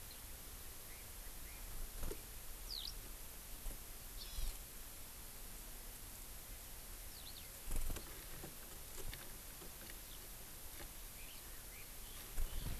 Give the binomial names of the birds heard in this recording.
Alauda arvensis, Chlorodrepanis virens